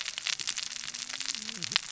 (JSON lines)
{"label": "biophony, cascading saw", "recorder": "SoundTrap 600 or HydroMoth"}